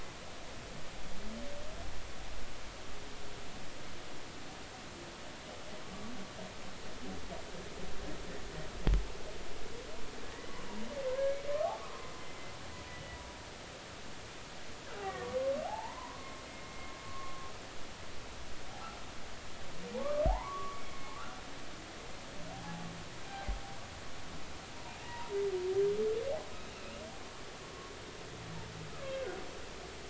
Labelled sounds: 10.3	10.6	humpback whale, 1.8 to 2.1 kHz
11.5	11.9	humpback whale, 0.99 to 1.3 kHz
15.0	17.3	humpback whale, 0.80 to 2.3 kHz
20.0	21.4	humpback whale, 0.80 to 2.3 kHz
22.5	22.8	humpback whale, 0.80 to 0.90 kHz
23.3	23.6	humpback whale, 0.80 to 0.83 kHz
25.0	25.3	humpback whale, 0.90 to 1.0 kHz
29.1	29.4	humpback whale, 1.4 to 1.6 kHz

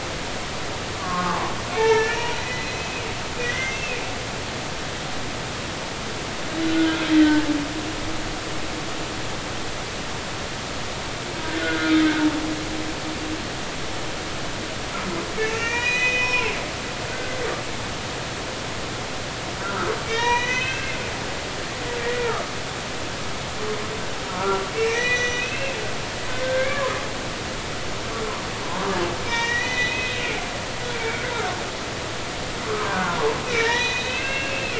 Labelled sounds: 1.0	3.1	humpback whale, 0.80 to 4.1 kHz
3.4	4.0	humpback whale, 1.9 to 2.7 kHz
6.5	6.9	humpback whale, 1.4 to 4.0 kHz
11.6	11.9	humpback whale, 1.4 to 1.5 kHz
15.4	17.4	humpback whale, 0.80 to 6.5 kHz
19.6	21.0	humpback whale, 0.90 to 6.2 kHz
24.3	25.8	humpback whale, 1.1 to 6.4 kHz
26.4	27.0	humpback whale, 0.96 to 2.4 kHz
29.2	30.5	humpback whale, 0.86 to 6.1 kHz
30.9	31.3	humpback whale, 2.2 to 2.4 kHz
32.7	34.7	humpback whale, 0.90 to 6.1 kHz

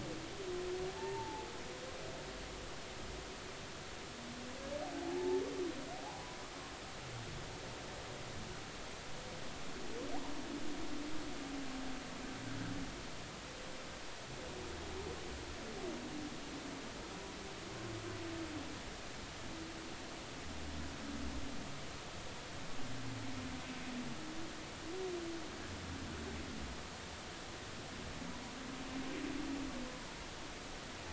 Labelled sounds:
0.9	1.5	humpback whale, 0.80 to 0.96 kHz
4.9	6.2	humpback whale, 0.80 to 1.0 kHz

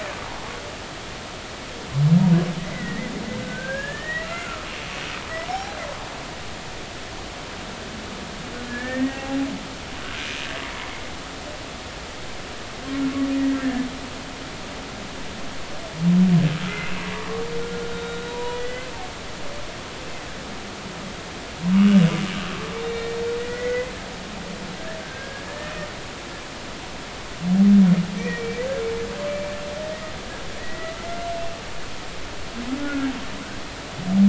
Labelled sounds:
2.6	4.7	humpback whale, 1.2 to 2.8 kHz
5.5	5.8	humpback whale, 0.80 to 0.86 kHz
8.7	9.4	humpback whale, 0.80 to 2.3 kHz
13.6	13.9	humpback whale, 1.7 to 1.9 kHz
17.9	18.9	humpback whale, 0.90 to 3.9 kHz
21.7	23.9	humpback whale, 1.8 to 3.7 kHz
25.0	25.7	humpback whale, 1.5 to 1.9 kHz
28.2	28.6	humpback whale, 1.8 to 2.6 kHz
30.6	31.3	humpback whale, 1.8 to 2.1 kHz
32.8	33.1	humpback whale, 1.3 to 1.5 kHz

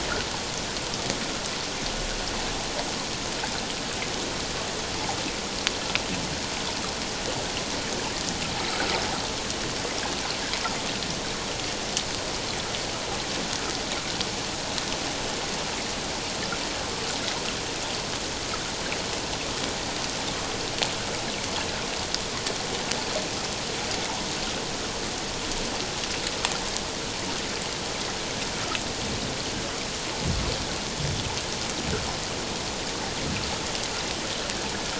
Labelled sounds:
8.7	9.0	water noise, 1.2 to 1.7 kHz

